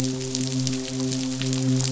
{"label": "biophony, midshipman", "recorder": "SoundTrap 500"}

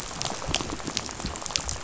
{"label": "biophony, rattle", "recorder": "SoundTrap 500"}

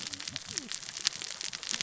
{"label": "biophony, cascading saw", "recorder": "SoundTrap 600 or HydroMoth"}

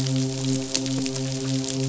{"label": "biophony, midshipman", "recorder": "SoundTrap 500"}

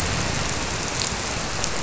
{"label": "biophony", "recorder": "SoundTrap 300"}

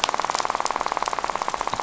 {"label": "biophony, rattle", "recorder": "SoundTrap 500"}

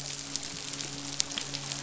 {"label": "biophony, midshipman", "recorder": "SoundTrap 500"}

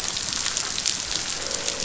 {"label": "biophony, croak", "recorder": "SoundTrap 500"}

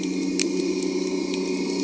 {"label": "anthrophony, boat engine", "recorder": "HydroMoth"}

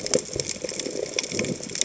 {"label": "biophony", "recorder": "HydroMoth"}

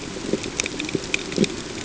{"label": "ambient", "recorder": "HydroMoth"}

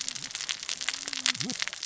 {"label": "biophony, cascading saw", "recorder": "SoundTrap 600 or HydroMoth"}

